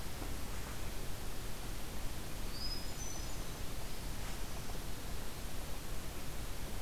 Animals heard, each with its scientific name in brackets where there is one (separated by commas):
Hermit Thrush (Catharus guttatus)